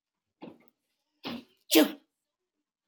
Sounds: Sneeze